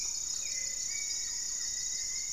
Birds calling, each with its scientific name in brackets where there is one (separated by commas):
Black-tailed Trogon (Trogon melanurus), Hauxwell's Thrush (Turdus hauxwelli), Goeldi's Antbird (Akletos goeldii), Gray-fronted Dove (Leptotila rufaxilla), Rufous-fronted Antthrush (Formicarius rufifrons)